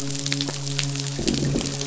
{"label": "biophony, midshipman", "recorder": "SoundTrap 500"}
{"label": "biophony, growl", "recorder": "SoundTrap 500"}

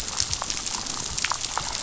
{"label": "biophony, damselfish", "recorder": "SoundTrap 500"}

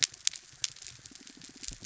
{"label": "biophony", "recorder": "SoundTrap 300"}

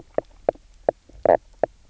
{"label": "biophony, knock croak", "recorder": "SoundTrap 300"}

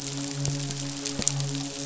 {"label": "biophony, midshipman", "recorder": "SoundTrap 500"}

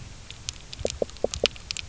{"label": "biophony, knock", "recorder": "SoundTrap 300"}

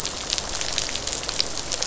{"label": "biophony, rattle response", "recorder": "SoundTrap 500"}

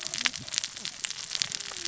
{"label": "biophony, cascading saw", "recorder": "SoundTrap 600 or HydroMoth"}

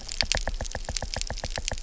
{"label": "biophony, knock", "recorder": "SoundTrap 300"}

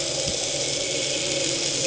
{"label": "anthrophony, boat engine", "recorder": "HydroMoth"}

